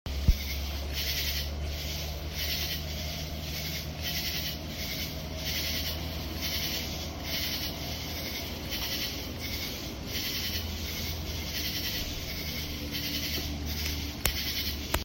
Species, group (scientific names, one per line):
Pterophylla camellifolia
Orthoptera